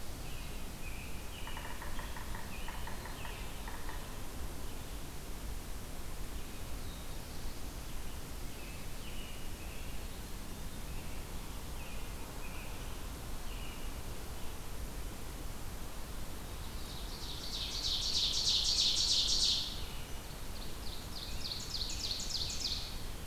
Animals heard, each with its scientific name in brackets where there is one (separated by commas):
Ovenbird (Seiurus aurocapilla), American Robin (Turdus migratorius), Black-throated Blue Warbler (Setophaga caerulescens), Yellow-bellied Sapsucker (Sphyrapicus varius)